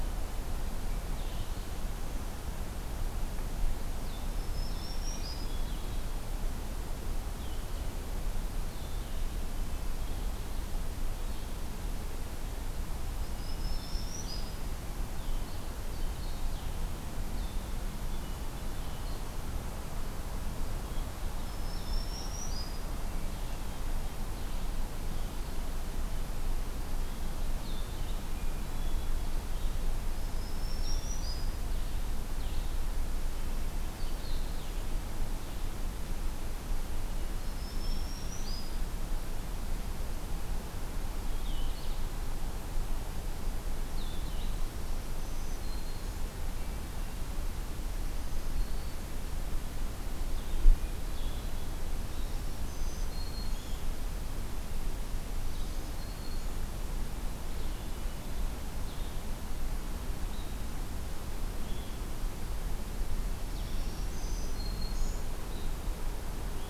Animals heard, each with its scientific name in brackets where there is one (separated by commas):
Red-eyed Vireo (Vireo olivaceus), Hermit Thrush (Catharus guttatus), Black-throated Green Warbler (Setophaga virens)